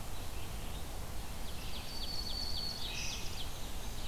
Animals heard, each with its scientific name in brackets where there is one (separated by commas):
Black-throated Green Warbler (Setophaga virens), Red-eyed Vireo (Vireo olivaceus), Ovenbird (Seiurus aurocapilla), Black-and-white Warbler (Mniotilta varia)